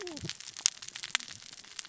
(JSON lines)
{"label": "biophony, cascading saw", "recorder": "SoundTrap 600 or HydroMoth"}